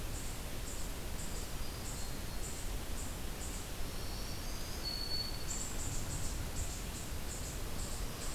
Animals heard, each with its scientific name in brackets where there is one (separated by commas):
Black-throated Green Warbler (Setophaga virens), Eastern Chipmunk (Tamias striatus)